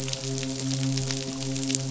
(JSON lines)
{"label": "biophony, midshipman", "recorder": "SoundTrap 500"}